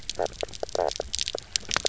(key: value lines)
label: biophony, knock croak
recorder: SoundTrap 300